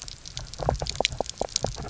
{"label": "biophony, knock croak", "recorder": "SoundTrap 300"}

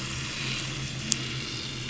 {"label": "anthrophony, boat engine", "recorder": "SoundTrap 500"}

